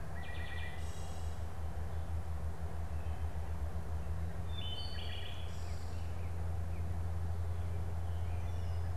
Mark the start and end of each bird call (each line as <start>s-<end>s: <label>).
0.0s-1.6s: Wood Thrush (Hylocichla mustelina)
4.3s-6.1s: Wood Thrush (Hylocichla mustelina)
5.6s-7.0s: unidentified bird